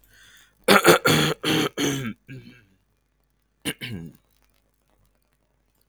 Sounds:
Throat clearing